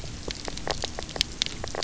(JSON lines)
{"label": "biophony, knock croak", "recorder": "SoundTrap 300"}